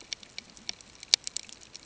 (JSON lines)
{"label": "ambient", "recorder": "HydroMoth"}